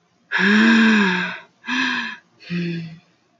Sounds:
Sigh